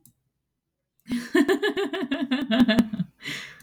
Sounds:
Laughter